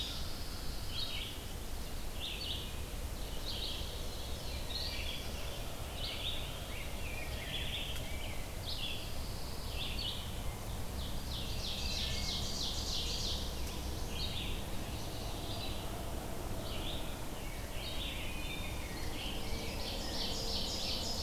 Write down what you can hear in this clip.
Wood Thrush, Red-eyed Vireo, Rose-breasted Grosbeak, Pine Warbler, Ovenbird